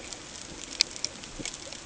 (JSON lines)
{"label": "ambient", "recorder": "HydroMoth"}